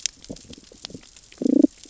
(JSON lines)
{"label": "biophony, damselfish", "recorder": "SoundTrap 600 or HydroMoth"}